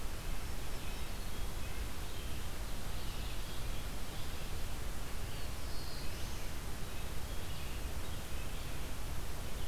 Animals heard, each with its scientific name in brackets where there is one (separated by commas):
Red-eyed Vireo (Vireo olivaceus), Black-throated Blue Warbler (Setophaga caerulescens)